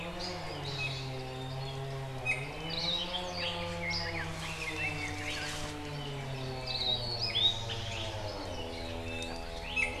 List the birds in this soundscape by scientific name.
Drepanis coccinea, Loxops coccineus, Leiothrix lutea